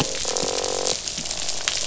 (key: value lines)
label: biophony, croak
recorder: SoundTrap 500